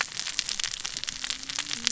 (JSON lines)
{"label": "biophony, cascading saw", "recorder": "SoundTrap 600 or HydroMoth"}